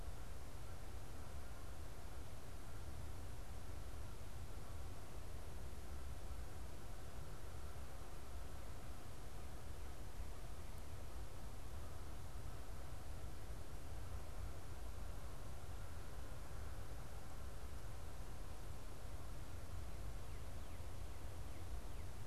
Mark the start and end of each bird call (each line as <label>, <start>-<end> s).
Northern Cardinal (Cardinalis cardinalis), 19.7-22.2 s